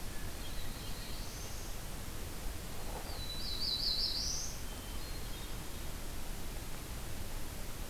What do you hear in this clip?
Black-throated Blue Warbler, Hermit Thrush